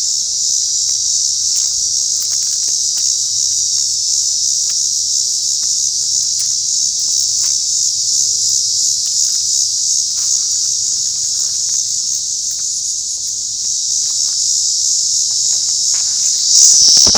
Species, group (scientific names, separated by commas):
Megatibicen dealbatus, Cicadidae